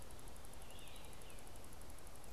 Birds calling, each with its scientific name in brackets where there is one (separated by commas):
Tufted Titmouse (Baeolophus bicolor)